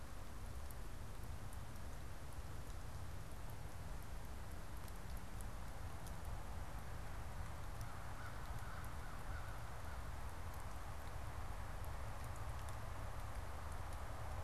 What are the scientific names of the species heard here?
Corvus brachyrhynchos